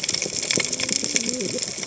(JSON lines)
{"label": "biophony, cascading saw", "recorder": "HydroMoth"}